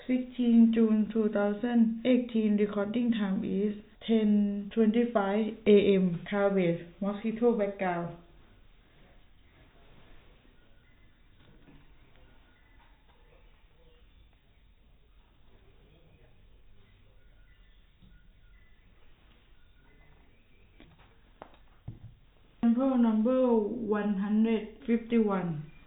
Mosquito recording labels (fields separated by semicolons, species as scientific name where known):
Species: no mosquito; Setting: cup